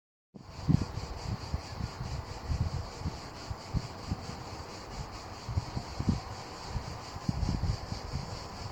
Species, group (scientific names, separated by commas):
Cicada orni, Cicadidae